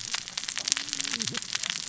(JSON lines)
{"label": "biophony, cascading saw", "recorder": "SoundTrap 600 or HydroMoth"}